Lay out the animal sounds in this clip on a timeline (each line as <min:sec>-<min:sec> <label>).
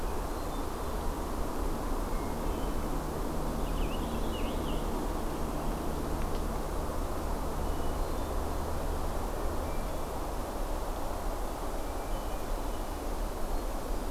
0:00.0-0:01.3 Hermit Thrush (Catharus guttatus)
0:01.9-0:03.2 Hermit Thrush (Catharus guttatus)
0:03.4-0:04.9 Purple Finch (Haemorhous purpureus)
0:07.5-0:08.8 Hermit Thrush (Catharus guttatus)
0:09.4-0:10.2 Hermit Thrush (Catharus guttatus)
0:11.7-0:13.0 Hermit Thrush (Catharus guttatus)